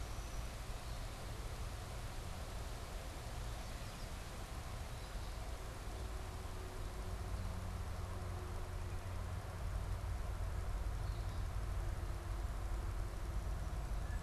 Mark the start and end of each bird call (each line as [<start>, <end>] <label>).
[0.00, 1.60] unidentified bird
[3.30, 5.70] unidentified bird